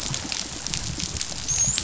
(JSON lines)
{"label": "biophony, dolphin", "recorder": "SoundTrap 500"}